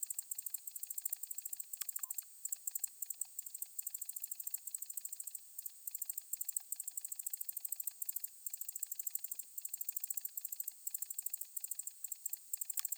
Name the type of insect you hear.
orthopteran